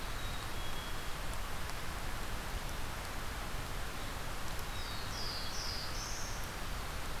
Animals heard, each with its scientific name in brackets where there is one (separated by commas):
Winter Wren (Troglodytes hiemalis), Black-capped Chickadee (Poecile atricapillus), Black-throated Blue Warbler (Setophaga caerulescens)